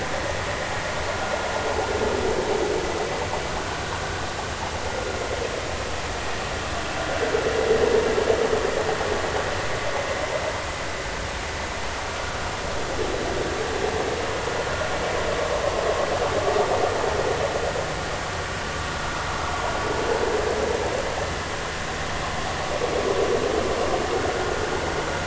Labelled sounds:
24.3	24.6	vessel noise, 1.4 to 1.6 kHz

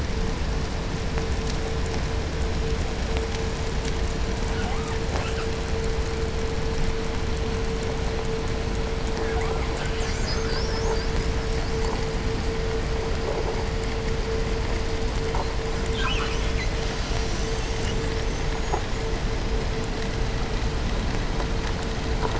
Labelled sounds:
4.2	5.5	killer whale, 0.42 to 5.4 kHz
9.1	9.8	killer whale, 0.36 to 2.5 kHz
9.7	12.1	killer whale, southern resident, 0.52 to 8.0 kHz
15.7	18.1	killer whale, southern resident, 0.65 to 8.0 kHz
18.2	19.3	killer whale, 5.2 to 7.4 kHz

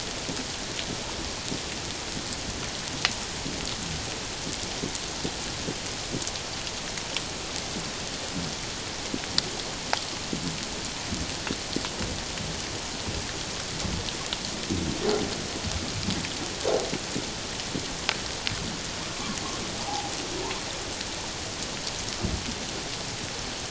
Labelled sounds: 19.1	19.4	humpback whale, 1.0 to 1.2 kHz
19.9	20.1	humpback whale, 0.78 to 0.91 kHz

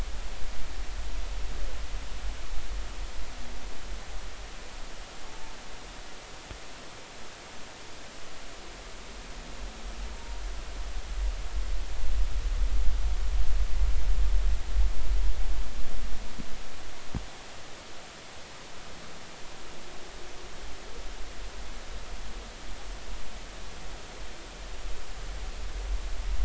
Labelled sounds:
5.3	5.6	humpback whale, 0.83 to 0.93 kHz
10.1	10.4	humpback whale, 0.90 to 0.99 kHz

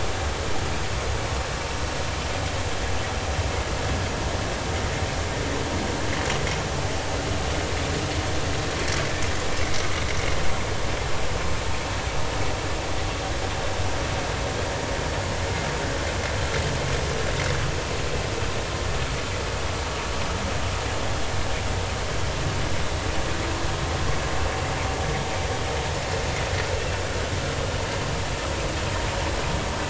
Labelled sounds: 9.6	9.9	vessel noise, 2.0 to 2.2 kHz

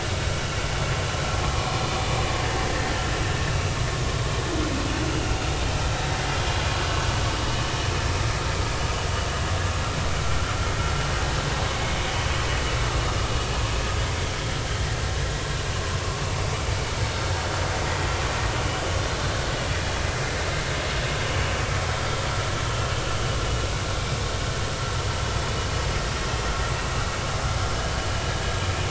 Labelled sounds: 2.4	2.7	vessel noise, 1.6 to 1.9 kHz
11.8	12.0	vessel noise, 2.1 to 2.3 kHz

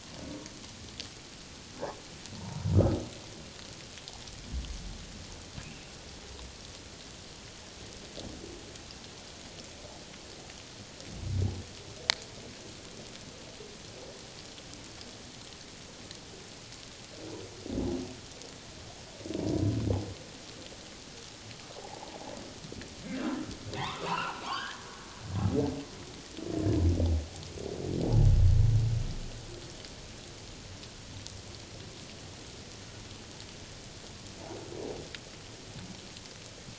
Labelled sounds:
2.4	2.7	humpback whale, 0.84 to 1.0 kHz
19.4	19.8	humpback whale, 0.94 to 1.1 kHz
23.2	24.8	humpback whale, 0.78 to 5.1 kHz

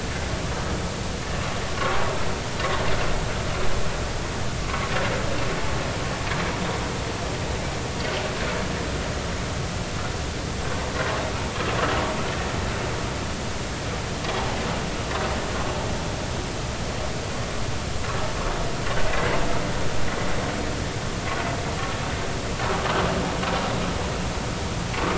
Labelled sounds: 4.6	4.9	vessel noise, 1.0 to 1.2 kHz

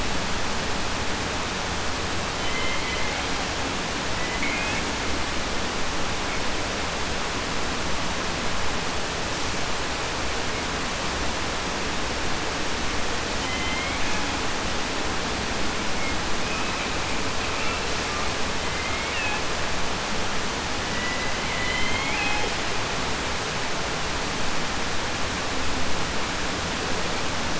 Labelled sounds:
2.2	3.3	killer whale, southern resident, J pod, call S01, 0.10 to 3.7 kHz
4.1	4.9	killer whale, 0.10 to 3.5 kHz
13.3	14.5	killer whale, southern resident, J pod, call S01, 0.10 to 4.5 kHz
15.7	18.4	killer whale, 0.54 to 5.5 kHz
18.5	19.5	killer whale, southern resident, J pod, call S01, 0.10 to 4.2 kHz
20.8	22.6	killer whale, southern resident, J pod, call S01, 0.10 to 5.9 kHz

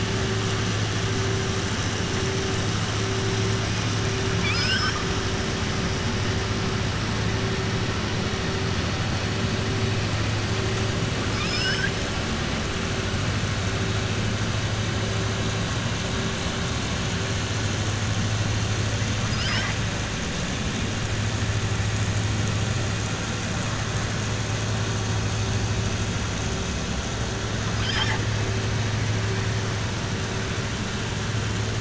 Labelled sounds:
4.3	5.0	killer whale, southern resident, 1.2 to 7.8 kHz
11.2	12.0	killer whale, southern resident, 1.4 to 7.8 kHz
19.2	19.8	killer whale, southern resident, 0.92 to 5.6 kHz

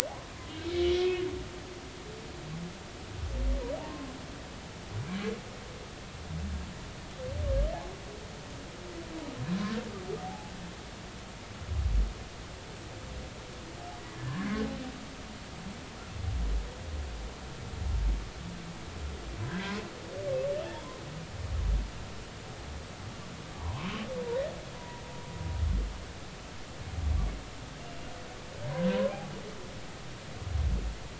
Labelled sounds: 0.6	1.2	humpback whale, 2.1 to 2.7 kHz
5.0	5.3	humpback whale, 2.1 to 2.5 kHz
10.2	10.5	humpback whale, 0.80 to 0.90 kHz
14.2	14.5	humpback whale, 1.5 to 1.8 kHz
19.5	19.7	humpback whale, 1.4 to 1.8 kHz
20.6	21.0	humpback whale, 0.83 to 3.5 kHz
23.5	23.9	humpback whale, 0.80 to 1.2 kHz
24.8	25.0	humpback whale, 0.93 to 1.0 kHz
28.9	29.2	humpback whale, 0.93 to 1.1 kHz

